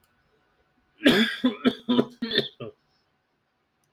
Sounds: Cough